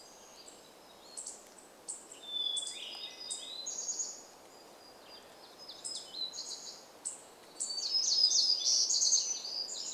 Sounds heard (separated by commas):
Hermit Thrush song, Western Tanager call, warbler song, unidentified bird chip note, unidentified sound